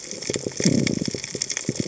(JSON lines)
{"label": "biophony", "recorder": "HydroMoth"}